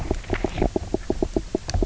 {"label": "biophony, knock croak", "recorder": "SoundTrap 300"}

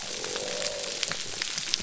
{"label": "biophony", "recorder": "SoundTrap 300"}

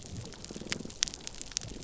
{"label": "biophony, damselfish", "recorder": "SoundTrap 300"}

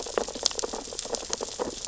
{"label": "biophony, sea urchins (Echinidae)", "recorder": "SoundTrap 600 or HydroMoth"}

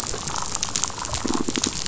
{"label": "biophony, damselfish", "recorder": "SoundTrap 500"}
{"label": "biophony", "recorder": "SoundTrap 500"}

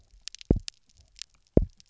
{"label": "biophony, double pulse", "recorder": "SoundTrap 300"}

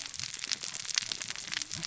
{"label": "biophony, cascading saw", "recorder": "SoundTrap 600 or HydroMoth"}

